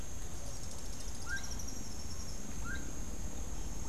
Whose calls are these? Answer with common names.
Rufous-tailed Hummingbird, Gray-headed Chachalaca